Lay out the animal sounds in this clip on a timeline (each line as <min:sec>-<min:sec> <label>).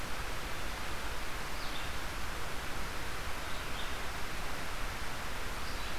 0:00.0-0:06.0 Red-eyed Vireo (Vireo olivaceus)